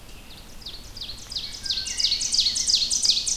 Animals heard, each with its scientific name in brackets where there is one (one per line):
Rose-breasted Grosbeak (Pheucticus ludovicianus)
Ovenbird (Seiurus aurocapilla)